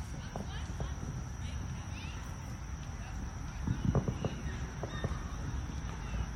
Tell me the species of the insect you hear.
Eunemobius carolinus